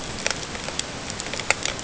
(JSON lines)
{"label": "ambient", "recorder": "HydroMoth"}